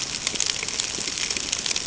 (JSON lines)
{"label": "ambient", "recorder": "HydroMoth"}